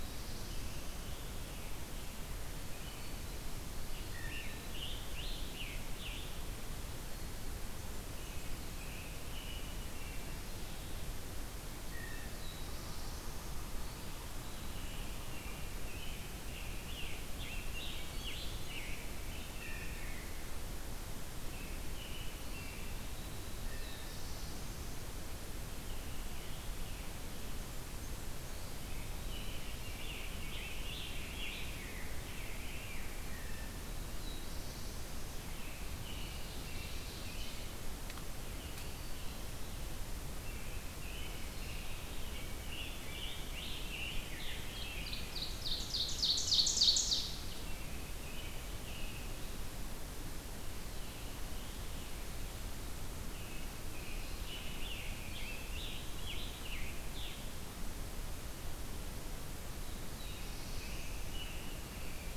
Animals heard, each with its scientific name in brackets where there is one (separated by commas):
Eastern Wood-Pewee (Contopus virens), Blue Jay (Cyanocitta cristata), Black-throated Green Warbler (Setophaga virens), Rose-breasted Grosbeak (Pheucticus ludovicianus), American Robin (Turdus migratorius), Black-throated Blue Warbler (Setophaga caerulescens), Ovenbird (Seiurus aurocapilla), Scarlet Tanager (Piranga olivacea)